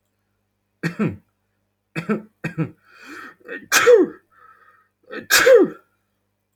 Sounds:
Sneeze